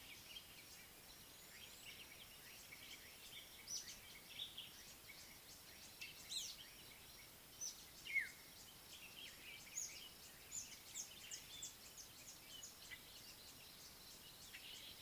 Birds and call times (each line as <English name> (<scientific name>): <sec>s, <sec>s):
Speckled Mousebird (Colius striatus): 3.8s, 11.0s
African Black-headed Oriole (Oriolus larvatus): 8.2s